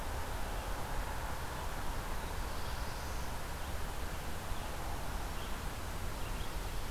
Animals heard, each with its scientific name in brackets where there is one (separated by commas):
Red-eyed Vireo (Vireo olivaceus), Black-throated Blue Warbler (Setophaga caerulescens)